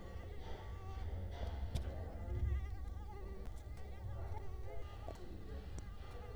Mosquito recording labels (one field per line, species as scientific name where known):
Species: Culex quinquefasciatus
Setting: cup